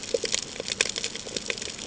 {"label": "ambient", "recorder": "HydroMoth"}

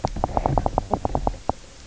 {"label": "biophony, knock", "recorder": "SoundTrap 300"}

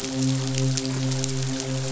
{"label": "biophony, midshipman", "recorder": "SoundTrap 500"}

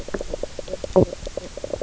{"label": "biophony, knock croak", "recorder": "SoundTrap 300"}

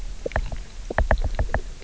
{"label": "biophony, knock", "recorder": "SoundTrap 300"}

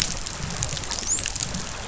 {"label": "biophony, dolphin", "recorder": "SoundTrap 500"}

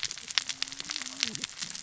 {"label": "biophony, cascading saw", "recorder": "SoundTrap 600 or HydroMoth"}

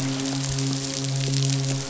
{"label": "biophony, midshipman", "recorder": "SoundTrap 500"}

